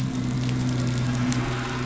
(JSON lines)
{"label": "anthrophony, boat engine", "recorder": "SoundTrap 500"}